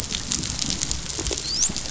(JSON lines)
{"label": "biophony, dolphin", "recorder": "SoundTrap 500"}